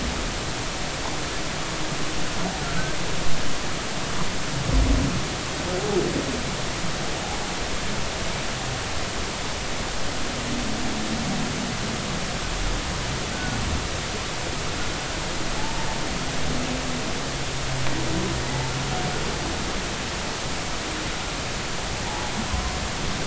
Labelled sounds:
2.6	2.9	humpback whale, 1.2 to 1.5 kHz
13.3	13.6	humpback whale, 1.4 to 1.6 kHz
15.6	15.9	humpback whale, 0.80 to 0.96 kHz
22.1	22.3	humpback whale, 0.80 to 0.99 kHz

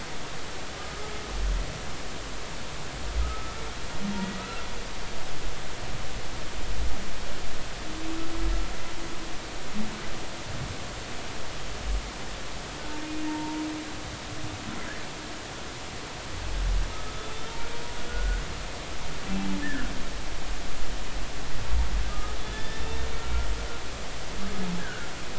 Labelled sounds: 3.2	3.5	humpback whale, 1.2 to 1.3 kHz
13.3	13.6	humpback whale, 0.86 to 0.99 kHz
18.1	18.4	humpback whale, 1.4 to 1.6 kHz
19.6	19.9	humpback whale, 1.3 to 1.9 kHz
22.1	23.1	humpback whale, 1.2 to 3.6 kHz
24.8	25.1	humpback whale, 1.4 to 1.7 kHz

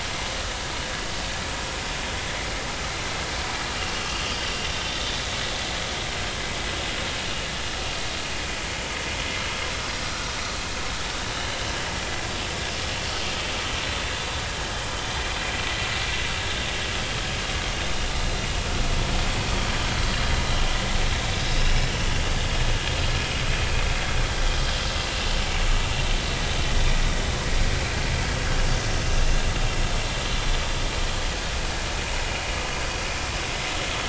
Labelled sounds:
4.0	4.2	vessel noise, 2.7 to 2.9 kHz

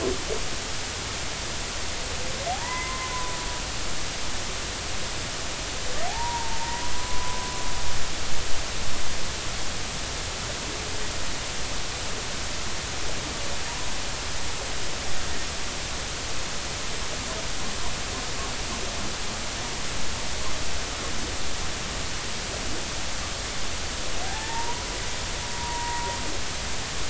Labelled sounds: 2.5	3.1	humpback whale, 0.80 to 2.1 kHz
6.1	7.5	humpback whale, 0.80 to 1.1 kHz
24.2	26.1	humpback whale, 0.80 to 1.0 kHz

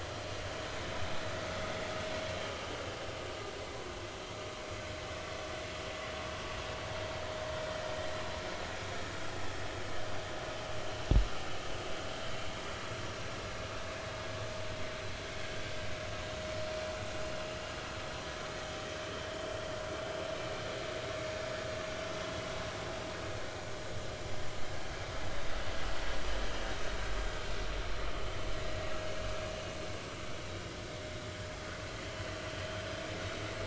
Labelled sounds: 7.8	8.1	vessel noise, 1.8 to 2.0 kHz
25.3	25.6	vessel noise, 3.6 to 3.8 kHz

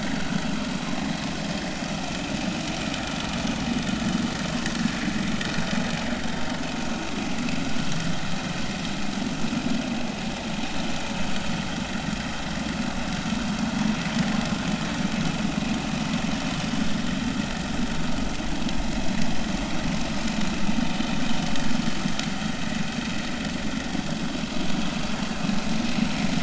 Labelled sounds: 0.8	1.0	vessel noise, 0.96 to 1.1 kHz

